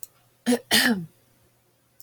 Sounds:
Throat clearing